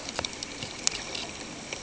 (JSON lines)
{"label": "ambient", "recorder": "HydroMoth"}